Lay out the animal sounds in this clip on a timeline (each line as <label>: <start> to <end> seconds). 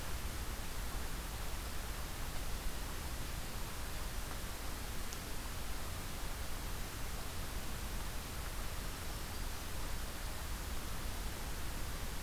Black-throated Green Warbler (Setophaga virens): 8.8 to 9.7 seconds